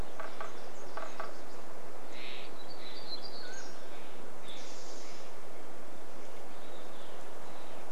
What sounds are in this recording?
Nashville Warbler song, woodpecker drumming, Steller's Jay call, Mountain Quail call, warbler song, Spotted Towhee song, Olive-sided Flycatcher song